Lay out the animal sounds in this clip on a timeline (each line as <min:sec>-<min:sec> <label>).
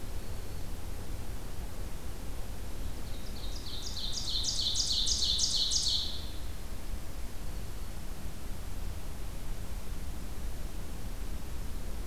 0:00.0-0:00.8 Black-throated Green Warbler (Setophaga virens)
0:02.6-0:06.6 Ovenbird (Seiurus aurocapilla)
0:07.3-0:08.1 Black-throated Green Warbler (Setophaga virens)